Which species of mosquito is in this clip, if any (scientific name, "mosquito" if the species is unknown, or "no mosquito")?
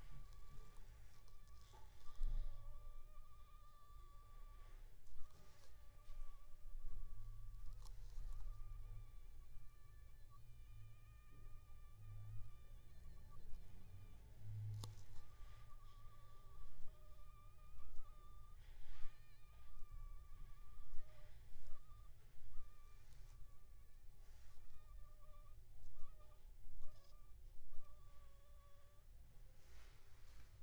Anopheles funestus s.s.